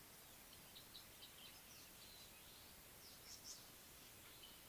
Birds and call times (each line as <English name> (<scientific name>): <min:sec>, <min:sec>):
Tawny-flanked Prinia (Prinia subflava): 0:03.5